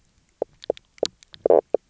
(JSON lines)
{"label": "biophony, knock croak", "recorder": "SoundTrap 300"}